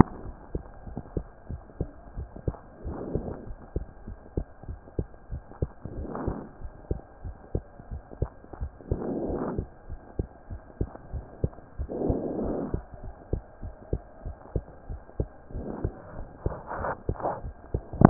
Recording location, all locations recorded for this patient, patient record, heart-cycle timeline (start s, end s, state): pulmonary valve (PV)
aortic valve (AV)+pulmonary valve (PV)+tricuspid valve (TV)+mitral valve (MV)
#Age: Child
#Sex: Male
#Height: 114.0 cm
#Weight: 19.3 kg
#Pregnancy status: False
#Murmur: Absent
#Murmur locations: nan
#Most audible location: nan
#Systolic murmur timing: nan
#Systolic murmur shape: nan
#Systolic murmur grading: nan
#Systolic murmur pitch: nan
#Systolic murmur quality: nan
#Diastolic murmur timing: nan
#Diastolic murmur shape: nan
#Diastolic murmur grading: nan
#Diastolic murmur pitch: nan
#Diastolic murmur quality: nan
#Outcome: Abnormal
#Campaign: 2015 screening campaign
0.00	0.20	unannotated
0.20	0.36	S1
0.36	0.52	systole
0.52	0.64	S2
0.64	0.83	diastole
0.83	0.98	S1
0.98	1.14	systole
1.14	1.24	S2
1.24	1.48	diastole
1.48	1.60	S1
1.60	1.76	systole
1.76	1.90	S2
1.90	2.16	diastole
2.16	2.28	S1
2.28	2.44	systole
2.44	2.58	S2
2.58	2.84	diastole
2.84	2.98	S1
2.98	3.12	systole
3.12	3.26	S2
3.26	3.48	diastole
3.48	3.58	S1
3.58	3.74	systole
3.74	3.88	S2
3.88	4.08	diastole
4.08	4.16	S1
4.16	4.34	systole
4.34	4.46	S2
4.46	4.68	diastole
4.68	4.78	S1
4.78	4.94	systole
4.94	5.06	S2
5.06	5.32	diastole
5.32	5.42	S1
5.42	5.58	systole
5.58	5.70	S2
5.70	5.96	diastole
5.96	6.10	S1
6.10	6.24	systole
6.24	6.38	S2
6.38	6.62	diastole
6.62	6.72	S1
6.72	6.86	systole
6.86	7.00	S2
7.00	7.24	diastole
7.24	7.34	S1
7.34	7.50	systole
7.50	7.64	S2
7.64	7.90	diastole
7.90	8.02	S1
8.02	8.18	systole
8.18	8.32	S2
8.32	8.60	diastole
8.60	8.72	S1
8.72	8.90	systole
8.90	9.00	S2
9.00	9.22	diastole
9.22	9.40	S1
9.40	9.56	systole
9.56	9.68	S2
9.68	9.90	diastole
9.90	10.00	S1
10.00	10.18	systole
10.18	10.26	S2
10.26	10.50	diastole
10.50	10.60	S1
10.60	10.76	systole
10.76	10.88	S2
10.88	11.12	diastole
11.12	11.26	S1
11.26	11.42	systole
11.42	11.54	S2
11.54	11.78	diastole
11.78	11.92	S1
11.92	12.04	systole
12.04	12.18	S2
12.18	12.38	diastole
12.38	12.56	S1
12.56	12.72	systole
12.72	12.84	S2
12.84	13.04	diastole
13.04	13.14	S1
13.14	13.30	systole
13.30	13.44	S2
13.44	13.64	diastole
13.64	13.74	S1
13.74	13.90	systole
13.90	14.02	S2
14.02	14.24	diastole
14.24	14.36	S1
14.36	14.52	systole
14.52	14.66	S2
14.66	14.88	diastole
14.88	15.00	S1
15.00	15.16	systole
15.16	15.30	S2
15.30	15.54	diastole
15.54	15.68	S1
15.68	15.82	systole
15.82	15.94	S2
15.94	16.14	diastole
16.14	16.26	S1
16.26	16.42	systole
16.42	16.58	S2
16.58	18.10	unannotated